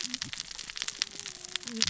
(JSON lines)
{"label": "biophony, cascading saw", "recorder": "SoundTrap 600 or HydroMoth"}